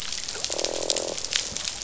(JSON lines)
{"label": "biophony, croak", "recorder": "SoundTrap 500"}